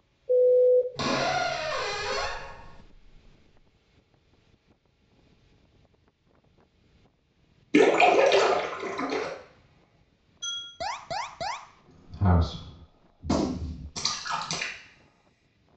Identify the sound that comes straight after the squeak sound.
splash